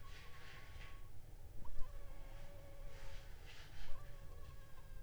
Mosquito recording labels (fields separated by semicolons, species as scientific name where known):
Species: Anopheles funestus s.s.; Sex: female; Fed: unfed; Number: one; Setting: cup